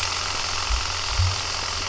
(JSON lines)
{"label": "anthrophony, boat engine", "recorder": "SoundTrap 300"}